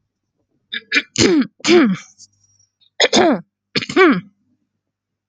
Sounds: Throat clearing